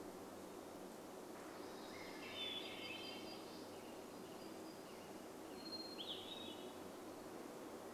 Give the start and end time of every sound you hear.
0s-4s: Swainson's Thrush song
0s-6s: warbler song
0s-8s: vehicle engine
2s-6s: Western Tanager song
2s-8s: Hermit Thrush song

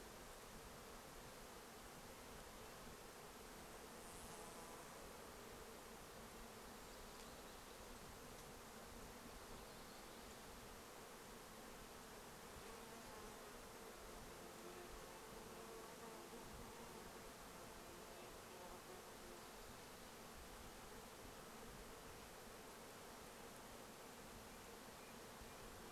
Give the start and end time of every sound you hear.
0s-26s: insect buzz
6s-10s: warbler song
14s-16s: Red-breasted Nuthatch song
24s-26s: Red-breasted Nuthatch song

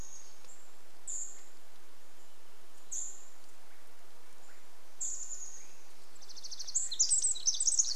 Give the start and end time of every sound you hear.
0s-2s: Chestnut-backed Chickadee call
0s-4s: Cedar Waxwing call
0s-8s: Swainson's Thrush call
2s-4s: Wrentit song
4s-6s: Chestnut-backed Chickadee call
6s-8s: Pacific Wren song

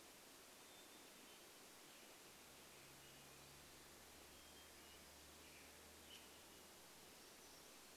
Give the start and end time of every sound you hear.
0s-2s: Hermit Thrush song
2s-8s: Western Tanager song
4s-6s: Hermit Thrush song
6s-8s: Black-throated Gray Warbler song

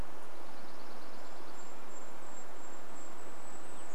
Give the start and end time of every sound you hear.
0s-2s: Dark-eyed Junco song
0s-4s: Golden-crowned Kinglet song

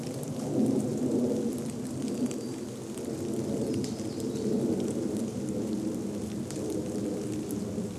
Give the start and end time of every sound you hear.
0s-8s: airplane
0s-8s: rain
2s-6s: warbler song

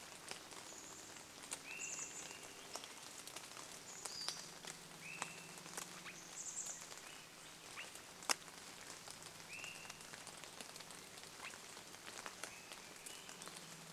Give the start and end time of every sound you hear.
0s-2s: Swainson's Thrush call
0s-8s: Chestnut-backed Chickadee call
0s-14s: rain
4s-6s: Pacific-slope Flycatcher call
4s-8s: vehicle engine
4s-12s: Swainson's Thrush call
12s-14s: Swainson's Thrush song
12s-14s: vehicle engine

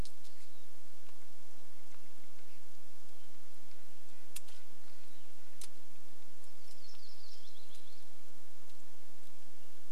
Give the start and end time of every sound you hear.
0s-2s: Western Wood-Pewee song
0s-4s: woodpecker drumming
2s-4s: Hermit Thrush song
2s-6s: Red-breasted Nuthatch song
4s-6s: Western Wood-Pewee song
6s-8s: Yellow-rumped Warbler song

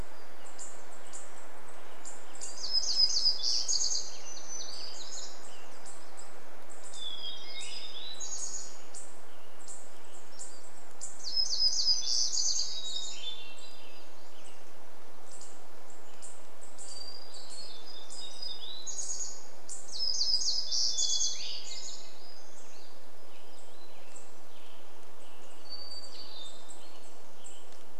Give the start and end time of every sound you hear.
0s-6s: Western Tanager song
0s-28s: unidentified bird chip note
2s-14s: warbler song
8s-10s: Western Tanager song
12s-14s: Hermit Thrush song
12s-16s: Western Tanager song
16s-18s: Hermit Thrush song
16s-22s: warbler song
20s-22s: Hermit Thrush song
22s-28s: Western Tanager song
24s-28s: Hermit Thrush song

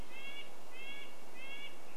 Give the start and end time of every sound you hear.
0s-2s: Red-breasted Nuthatch song

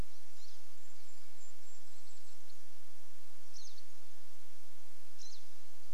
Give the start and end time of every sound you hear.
0s-2s: Varied Thrush song
0s-4s: Golden-crowned Kinglet song
0s-6s: Pine Siskin call

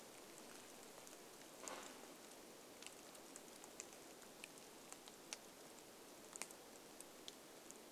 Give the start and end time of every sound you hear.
0s-2s: tree creak
0s-8s: rain

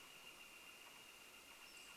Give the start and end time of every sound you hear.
0s-2s: Canada Jay call
0s-2s: Golden-crowned Kinglet call
0s-2s: Northern Flicker call
0s-2s: Pacific-slope Flycatcher call

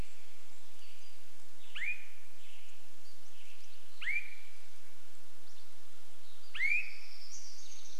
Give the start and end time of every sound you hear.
0s-2s: Swainson's Thrush call
2s-4s: Pacific-slope Flycatcher call
2s-4s: Western Tanager song
4s-6s: Pacific-slope Flycatcher song
4s-8s: Swainson's Thrush call
6s-8s: warbler song

